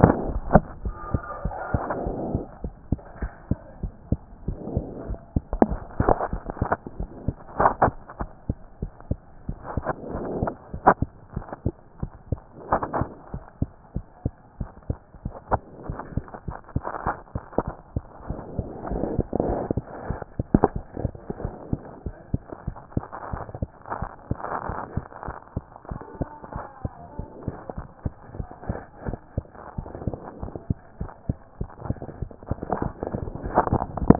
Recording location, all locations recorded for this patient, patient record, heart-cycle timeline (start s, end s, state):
mitral valve (MV)
aortic valve (AV)+pulmonary valve (PV)+mitral valve (MV)
#Age: Child
#Sex: Female
#Height: 101.0 cm
#Weight: 14.7 kg
#Pregnancy status: False
#Murmur: Absent
#Murmur locations: nan
#Most audible location: nan
#Systolic murmur timing: nan
#Systolic murmur shape: nan
#Systolic murmur grading: nan
#Systolic murmur pitch: nan
#Systolic murmur quality: nan
#Diastolic murmur timing: nan
#Diastolic murmur shape: nan
#Diastolic murmur grading: nan
#Diastolic murmur pitch: nan
#Diastolic murmur quality: nan
#Outcome: Normal
#Campaign: 2014 screening campaign
0.00	21.36	unannotated
21.36	21.44	diastole
21.44	21.54	S1
21.54	21.70	systole
21.70	21.78	S2
21.78	22.04	diastole
22.04	22.16	S1
22.16	22.32	systole
22.32	22.42	S2
22.42	22.66	diastole
22.66	22.76	S1
22.76	22.94	systole
22.94	23.04	S2
23.04	23.32	diastole
23.32	23.42	S1
23.42	23.60	systole
23.60	23.70	S2
23.70	23.98	diastole
23.98	24.10	S1
24.10	24.28	systole
24.28	24.38	S2
24.38	24.68	diastole
24.68	24.78	S1
24.78	24.94	systole
24.94	25.04	S2
25.04	25.26	diastole
25.26	25.36	S1
25.36	25.54	systole
25.54	25.64	S2
25.64	25.90	diastole
25.90	26.00	S1
26.00	26.20	systole
26.20	26.28	S2
26.28	26.54	diastole
26.54	26.64	S1
26.64	26.84	systole
26.84	26.92	S2
26.92	27.18	diastole
27.18	27.28	S1
27.28	27.46	systole
27.46	27.56	S2
27.56	27.76	diastole
27.76	27.88	S1
27.88	28.04	systole
28.04	28.14	S2
28.14	28.36	diastole
28.36	28.48	S1
28.48	28.68	systole
28.68	28.78	S2
28.78	29.06	diastole
29.06	29.18	S1
29.18	29.36	systole
29.36	29.46	S2
29.46	29.78	diastole
29.78	29.88	S1
29.88	30.06	systole
30.06	30.16	S2
30.16	30.40	diastole
30.40	30.52	S1
30.52	30.68	systole
30.68	30.78	S2
30.78	31.00	diastole
31.00	31.10	S1
31.10	31.28	systole
31.28	31.38	S2
31.38	31.60	diastole
31.60	31.70	S1
31.70	31.86	systole
31.86	31.98	S2
31.98	32.20	diastole
32.20	32.30	S1
32.30	32.48	systole
32.48	32.58	S2
32.58	34.19	unannotated